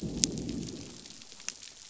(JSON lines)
{"label": "biophony, growl", "recorder": "SoundTrap 500"}